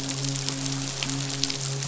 {"label": "biophony, midshipman", "recorder": "SoundTrap 500"}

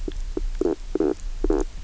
{"label": "biophony, knock croak", "recorder": "SoundTrap 300"}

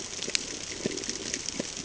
{"label": "ambient", "recorder": "HydroMoth"}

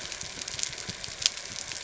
{"label": "anthrophony, boat engine", "recorder": "SoundTrap 300"}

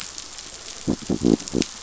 {"label": "biophony", "recorder": "SoundTrap 500"}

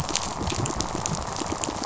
{"label": "biophony, pulse", "recorder": "SoundTrap 500"}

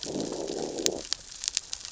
{"label": "biophony, growl", "recorder": "SoundTrap 600 or HydroMoth"}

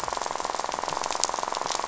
{"label": "biophony, rattle", "recorder": "SoundTrap 500"}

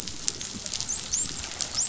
{"label": "biophony, dolphin", "recorder": "SoundTrap 500"}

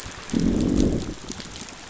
{"label": "biophony, growl", "recorder": "SoundTrap 500"}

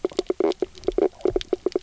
{"label": "biophony, knock croak", "recorder": "SoundTrap 300"}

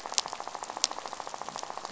{"label": "biophony, rattle", "recorder": "SoundTrap 500"}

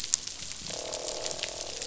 {"label": "biophony, croak", "recorder": "SoundTrap 500"}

